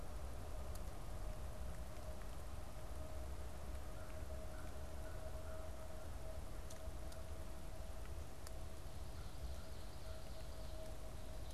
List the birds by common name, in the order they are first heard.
American Crow